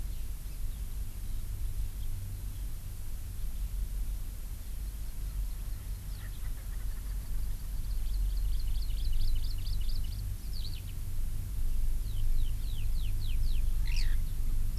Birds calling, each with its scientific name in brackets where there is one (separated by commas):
Erckel's Francolin (Pternistis erckelii), Hawaii Amakihi (Chlorodrepanis virens), Eurasian Skylark (Alauda arvensis)